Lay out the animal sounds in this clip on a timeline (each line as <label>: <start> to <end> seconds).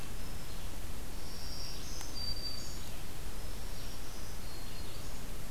Black-throated Green Warbler (Setophaga virens): 0.0 to 0.7 seconds
Red-eyed Vireo (Vireo olivaceus): 0.3 to 5.5 seconds
Black-throated Green Warbler (Setophaga virens): 1.1 to 3.0 seconds
Black-throated Green Warbler (Setophaga virens): 3.4 to 5.2 seconds